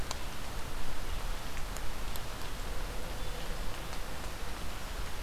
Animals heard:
forest ambience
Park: Marsh-Billings-Rockefeller National Historical Park